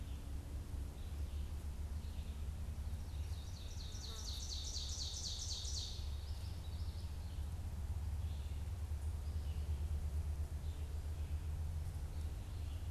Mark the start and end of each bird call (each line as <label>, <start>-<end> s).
Ovenbird (Seiurus aurocapilla), 3.0-6.2 s
Common Yellowthroat (Geothlypis trichas), 5.8-7.3 s